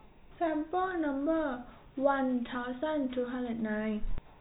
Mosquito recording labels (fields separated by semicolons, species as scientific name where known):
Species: no mosquito; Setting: cup